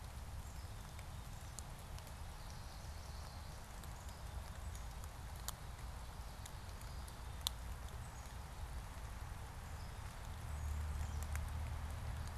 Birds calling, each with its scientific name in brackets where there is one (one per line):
Chestnut-sided Warbler (Setophaga pensylvanica)